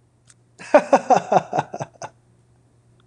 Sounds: Laughter